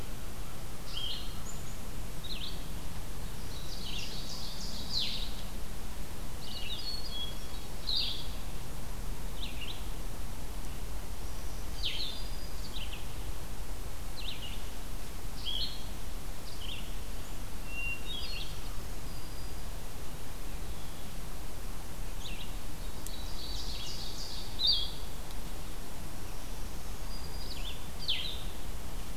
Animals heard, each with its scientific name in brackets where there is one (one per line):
Blue-headed Vireo (Vireo solitarius)
Hermit Thrush (Catharus guttatus)
unidentified call
Ovenbird (Seiurus aurocapilla)
Black-throated Green Warbler (Setophaga virens)
Red-eyed Vireo (Vireo olivaceus)